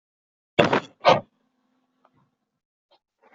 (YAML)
expert_labels:
- quality: poor
  cough_type: wet
  dyspnea: false
  wheezing: false
  stridor: false
  choking: false
  congestion: false
  nothing: true
  diagnosis: lower respiratory tract infection
  severity: unknown
age: 20
gender: male
respiratory_condition: false
fever_muscle_pain: false
status: healthy